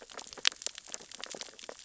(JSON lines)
{"label": "biophony, sea urchins (Echinidae)", "recorder": "SoundTrap 600 or HydroMoth"}